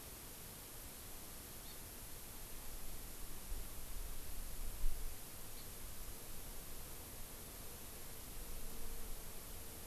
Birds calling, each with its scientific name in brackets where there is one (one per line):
Hawaii Amakihi (Chlorodrepanis virens)